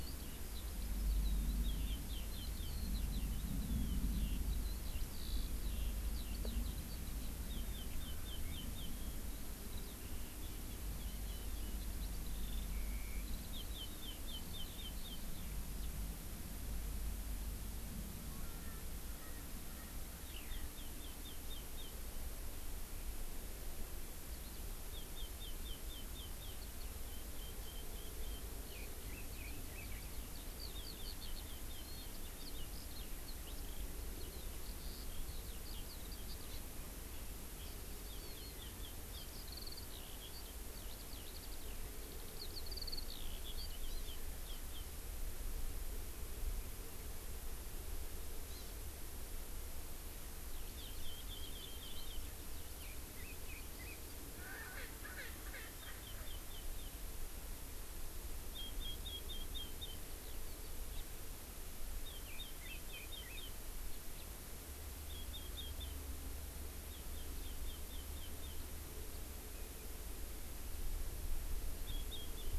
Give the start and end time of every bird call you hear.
0.0s-15.9s: Eurasian Skylark (Alauda arvensis)
7.5s-8.9s: Chinese Hwamei (Garrulax canorus)
13.5s-15.2s: Chinese Hwamei (Garrulax canorus)
18.3s-19.9s: Erckel's Francolin (Pternistis erckelii)
20.2s-21.9s: Chinese Hwamei (Garrulax canorus)
20.3s-20.7s: Eurasian Skylark (Alauda arvensis)
24.9s-26.6s: Chinese Hwamei (Garrulax canorus)
27.1s-30.1s: Chinese Hwamei (Garrulax canorus)
30.1s-44.9s: Eurasian Skylark (Alauda arvensis)
38.1s-39.3s: Chinese Hwamei (Garrulax canorus)
48.5s-48.8s: Hawaii Amakihi (Chlorodrepanis virens)
50.8s-52.2s: Chinese Hwamei (Garrulax canorus)
52.8s-54.0s: Chinese Hwamei (Garrulax canorus)
54.3s-56.3s: Erckel's Francolin (Pternistis erckelii)
55.8s-56.9s: Chinese Hwamei (Garrulax canorus)
58.5s-60.0s: Chinese Hwamei (Garrulax canorus)
62.1s-63.6s: Chinese Hwamei (Garrulax canorus)
65.1s-66.0s: Chinese Hwamei (Garrulax canorus)
66.9s-68.6s: Chinese Hwamei (Garrulax canorus)
71.9s-72.6s: Chinese Hwamei (Garrulax canorus)

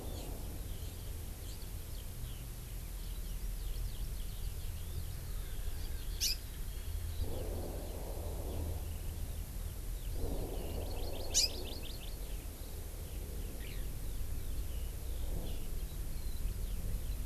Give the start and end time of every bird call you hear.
0.1s-0.3s: Hawaii Amakihi (Chlorodrepanis virens)
1.4s-9.1s: Eurasian Skylark (Alauda arvensis)
6.2s-6.4s: Hawaii Amakihi (Chlorodrepanis virens)
10.1s-10.4s: Hawaii Amakihi (Chlorodrepanis virens)
10.8s-12.2s: Hawaii Amakihi (Chlorodrepanis virens)
13.0s-17.2s: Eurasian Skylark (Alauda arvensis)

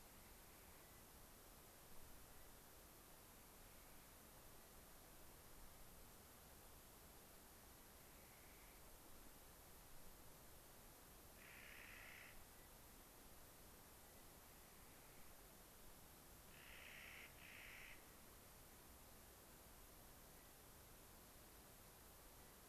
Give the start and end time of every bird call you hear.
0.0s-0.8s: Clark's Nutcracker (Nucifraga columbiana)
0.7s-1.1s: unidentified bird
2.2s-2.6s: unidentified bird
7.9s-9.0s: Clark's Nutcracker (Nucifraga columbiana)
11.2s-12.4s: Clark's Nutcracker (Nucifraga columbiana)
12.4s-12.7s: unidentified bird
13.9s-14.4s: unidentified bird
14.4s-15.4s: Clark's Nutcracker (Nucifraga columbiana)
16.4s-18.0s: Clark's Nutcracker (Nucifraga columbiana)
20.3s-20.6s: unidentified bird

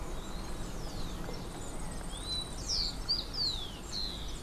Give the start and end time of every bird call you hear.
1.2s-3.1s: Yellow-faced Grassquit (Tiaris olivaceus)
2.0s-4.4s: Rufous-collared Sparrow (Zonotrichia capensis)

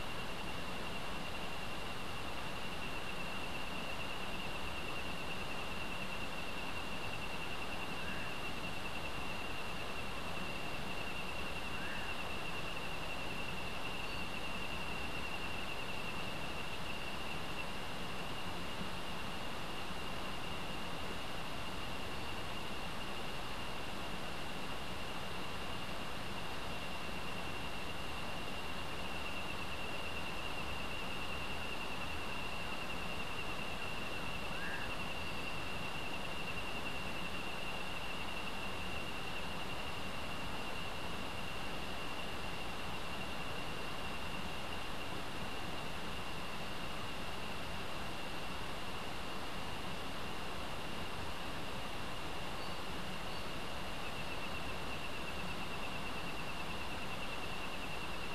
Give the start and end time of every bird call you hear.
7.5s-8.4s: Common Pauraque (Nyctidromus albicollis)
11.0s-12.4s: Common Pauraque (Nyctidromus albicollis)
34.4s-35.0s: Common Pauraque (Nyctidromus albicollis)

